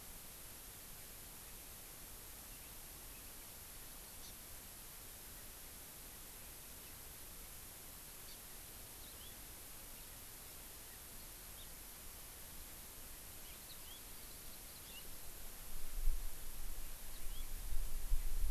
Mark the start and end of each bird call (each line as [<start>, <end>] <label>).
[8.21, 8.41] Hawaii Amakihi (Chlorodrepanis virens)
[9.01, 9.31] Yellow-fronted Canary (Crithagra mozambica)
[11.51, 11.71] Hawaii Amakihi (Chlorodrepanis virens)
[13.61, 14.01] Yellow-fronted Canary (Crithagra mozambica)
[17.01, 17.41] Yellow-fronted Canary (Crithagra mozambica)